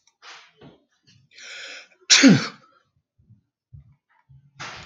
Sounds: Sneeze